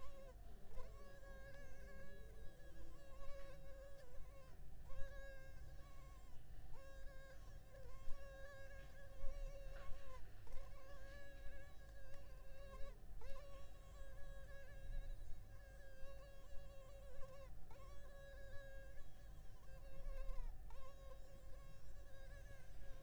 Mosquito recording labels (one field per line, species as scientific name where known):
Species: Culex pipiens complex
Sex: female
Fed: unfed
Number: one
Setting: cup